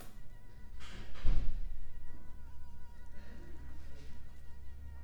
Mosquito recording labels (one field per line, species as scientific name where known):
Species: Mansonia uniformis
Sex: female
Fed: unfed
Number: one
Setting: cup